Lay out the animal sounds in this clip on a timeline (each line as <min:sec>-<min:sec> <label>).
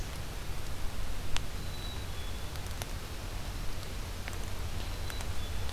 0:01.5-0:02.7 Black-capped Chickadee (Poecile atricapillus)
0:04.8-0:05.7 Black-capped Chickadee (Poecile atricapillus)